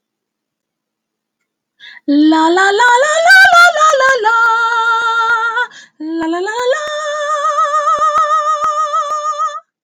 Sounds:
Sigh